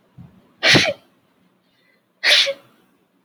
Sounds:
Sneeze